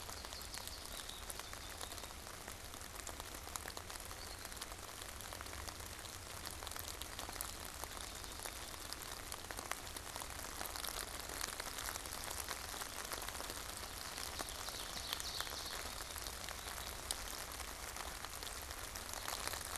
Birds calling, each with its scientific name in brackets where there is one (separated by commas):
Ovenbird (Seiurus aurocapilla), American Goldfinch (Spinus tristis)